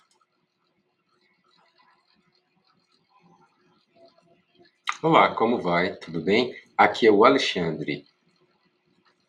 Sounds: Cough